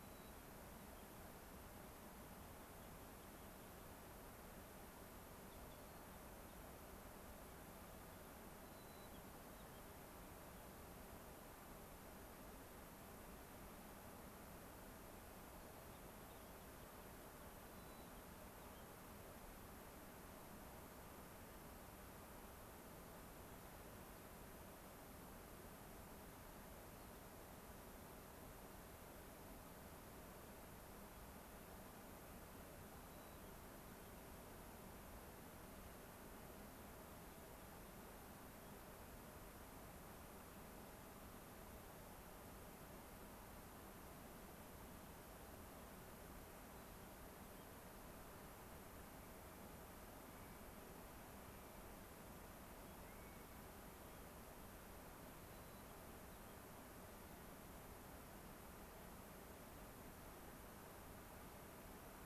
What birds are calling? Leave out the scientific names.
White-crowned Sparrow, unidentified bird, Clark's Nutcracker